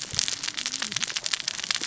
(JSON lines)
{"label": "biophony, cascading saw", "recorder": "SoundTrap 600 or HydroMoth"}